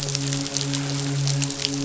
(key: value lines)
label: biophony, midshipman
recorder: SoundTrap 500